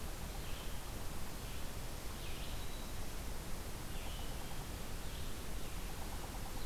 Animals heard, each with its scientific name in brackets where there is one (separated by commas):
Red-eyed Vireo (Vireo olivaceus), Black-throated Green Warbler (Setophaga virens)